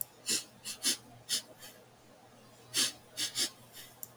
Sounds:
Sniff